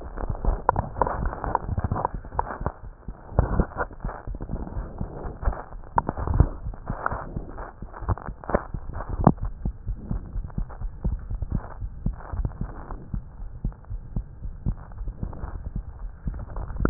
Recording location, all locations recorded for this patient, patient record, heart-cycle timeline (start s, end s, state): aortic valve (AV)
aortic valve (AV)+pulmonary valve (PV)+tricuspid valve (TV)+mitral valve (MV)
#Age: Child
#Sex: Male
#Height: 73.0 cm
#Weight: 8.775 kg
#Pregnancy status: False
#Murmur: Absent
#Murmur locations: nan
#Most audible location: nan
#Systolic murmur timing: nan
#Systolic murmur shape: nan
#Systolic murmur grading: nan
#Systolic murmur pitch: nan
#Systolic murmur quality: nan
#Diastolic murmur timing: nan
#Diastolic murmur shape: nan
#Diastolic murmur grading: nan
#Diastolic murmur pitch: nan
#Diastolic murmur quality: nan
#Outcome: Normal
#Campaign: 2015 screening campaign
0.00	9.41	unannotated
9.41	9.50	S1
9.50	9.63	systole
9.63	9.71	S2
9.71	9.85	diastole
9.85	9.95	S1
9.95	10.09	systole
10.09	10.18	S2
10.18	10.32	diastole
10.32	10.43	S1
10.43	10.55	systole
10.55	10.67	S2
10.67	10.80	diastole
10.80	10.90	S1
10.90	11.03	systole
11.03	11.15	S2
11.15	11.29	diastole
11.29	11.36	S1
11.36	11.50	systole
11.50	11.60	S2
11.60	11.79	diastole
11.79	11.90	S1
11.90	12.02	systole
12.02	12.12	S2
12.12	12.33	diastole
12.33	12.47	S1
12.47	12.58	systole
12.58	12.69	S2
12.69	12.89	diastole
12.89	12.98	S1
12.98	13.11	systole
13.11	13.21	S2
13.21	13.38	diastole
13.38	13.50	S1
13.50	13.62	systole
13.62	13.71	S2
13.71	13.90	diastole
13.90	14.00	S1
14.00	14.14	systole
14.14	14.22	S2
14.22	14.42	diastole
14.42	14.53	S1
14.53	14.65	systole
14.65	14.74	S2
14.74	15.00	diastole
15.00	16.90	unannotated